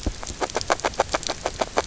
{"label": "biophony, grazing", "recorder": "SoundTrap 300"}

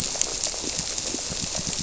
{"label": "biophony", "recorder": "SoundTrap 300"}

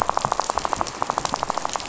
{"label": "biophony, rattle", "recorder": "SoundTrap 500"}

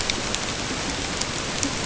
{"label": "ambient", "recorder": "HydroMoth"}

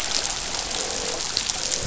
{"label": "biophony, croak", "recorder": "SoundTrap 500"}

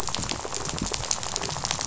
{"label": "biophony, rattle", "recorder": "SoundTrap 500"}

